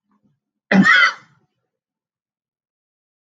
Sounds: Sneeze